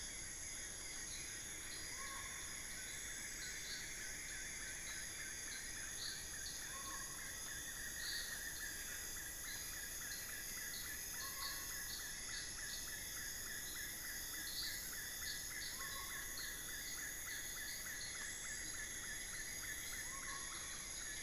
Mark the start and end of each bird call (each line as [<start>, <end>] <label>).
[0.00, 21.22] Black-fronted Nunbird (Monasa nigrifrons)
[0.00, 21.22] Collared Forest-Falcon (Micrastur semitorquatus)